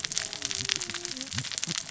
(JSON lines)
{"label": "biophony, cascading saw", "recorder": "SoundTrap 600 or HydroMoth"}